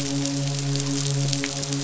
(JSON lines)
{"label": "biophony, midshipman", "recorder": "SoundTrap 500"}